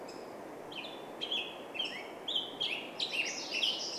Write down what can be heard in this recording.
Black-headed Grosbeak call, Black-headed Grosbeak song, MacGillivray's Warbler song